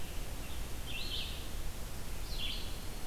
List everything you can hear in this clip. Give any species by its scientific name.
Vireo olivaceus